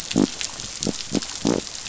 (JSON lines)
{"label": "biophony", "recorder": "SoundTrap 500"}